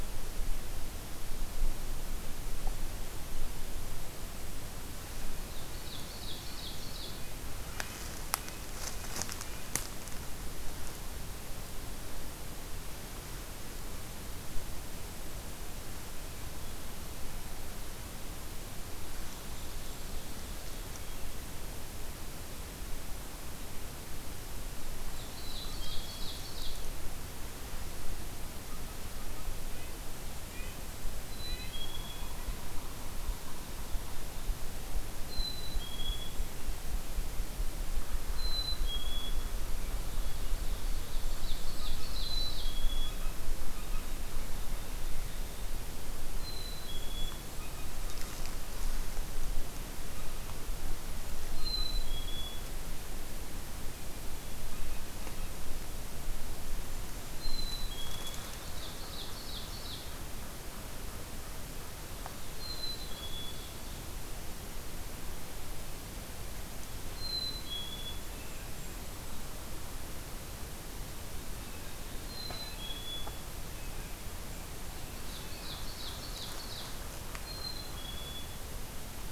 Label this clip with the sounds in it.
Ovenbird, Red-breasted Nuthatch, Golden-crowned Kinglet, Black-capped Chickadee, Blue Jay